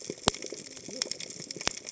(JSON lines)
{"label": "biophony, cascading saw", "recorder": "HydroMoth"}